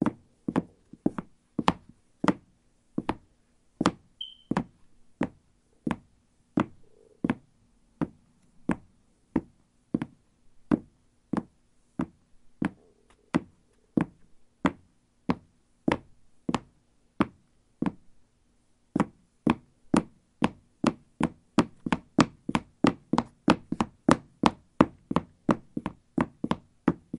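0.1s Footsteps. 27.2s
4.1s Shoes squeaking. 5.2s
18.9s Footsteps gradually get faster. 27.1s

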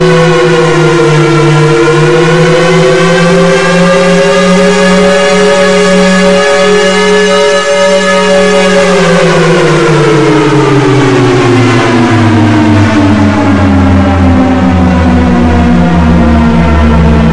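0.0s An air raid siren blares loudly in a fading pattern. 17.3s

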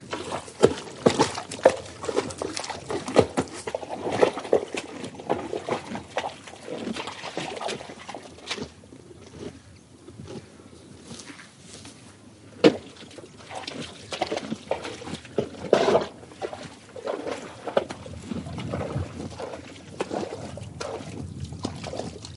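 0.0s Animals are squelching rhythmically in the water outside. 8.8s
7.4s Birds are singing faintly in the background. 21.3s
9.3s Cows chew slowly in the background. 11.8s
10.2s Cows are mooing indistinctly in the background. 14.0s
12.6s Cows are drinking water hurriedly from a pond. 22.4s

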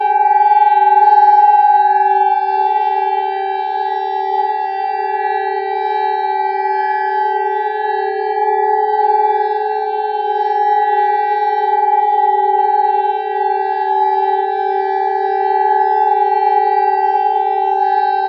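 0.0s Loud sirens repeating. 18.3s

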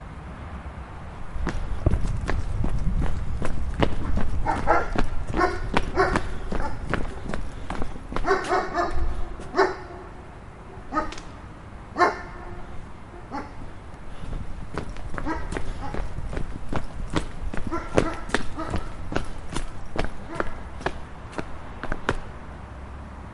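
1.2s A dog barks occasionally in the background. 9.9s
1.2s A person is running outdoors. 9.9s
10.7s A dog barks loudly outdoors. 13.6s
14.5s A dog barking fades into the distance. 23.3s
14.5s Footsteps of a person running outdoors. 23.3s

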